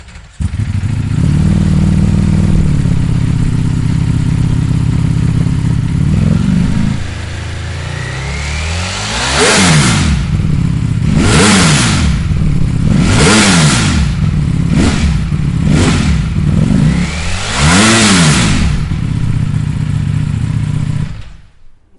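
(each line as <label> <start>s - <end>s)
A motorcycle engine rumbles steadily at a moderate volume. 0.0s - 7.0s
A motorcycle engine revs continuously, producing a sharp growling sound. 7.0s - 20.9s
A motorcycle engine shuts off and fades into silence. 20.9s - 22.0s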